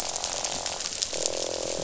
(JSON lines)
{"label": "biophony, croak", "recorder": "SoundTrap 500"}